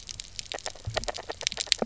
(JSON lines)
{"label": "biophony, knock croak", "recorder": "SoundTrap 300"}